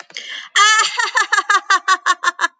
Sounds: Laughter